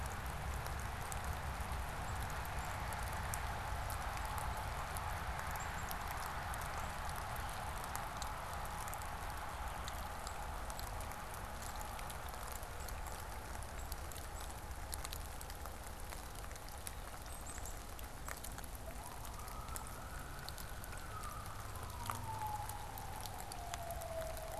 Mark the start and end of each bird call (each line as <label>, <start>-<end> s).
Black-capped Chickadee (Poecile atricapillus), 1.9-6.0 s
Black-capped Chickadee (Poecile atricapillus), 10.1-18.6 s